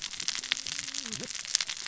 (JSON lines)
{"label": "biophony, cascading saw", "recorder": "SoundTrap 600 or HydroMoth"}